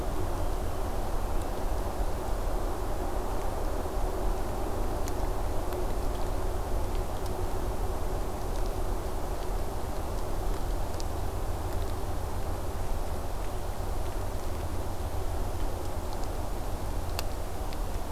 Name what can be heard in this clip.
forest ambience